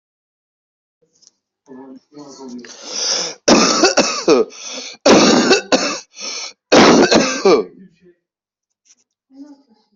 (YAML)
expert_labels:
- quality: ok
  cough_type: dry
  dyspnea: false
  wheezing: false
  stridor: false
  choking: false
  congestion: false
  nothing: true
  diagnosis: COVID-19
  severity: unknown
age: 37
gender: male
respiratory_condition: false
fever_muscle_pain: false
status: COVID-19